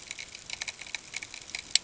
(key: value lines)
label: ambient
recorder: HydroMoth